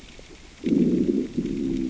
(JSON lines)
{"label": "biophony, growl", "recorder": "SoundTrap 600 or HydroMoth"}